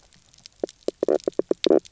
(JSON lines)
{"label": "biophony, knock croak", "recorder": "SoundTrap 300"}